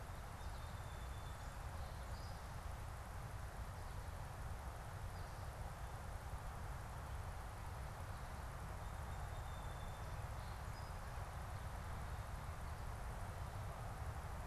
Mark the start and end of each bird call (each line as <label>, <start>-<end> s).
Song Sparrow (Melospiza melodia), 0.0-2.8 s
Song Sparrow (Melospiza melodia), 8.4-11.7 s